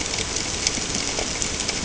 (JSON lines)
{"label": "ambient", "recorder": "HydroMoth"}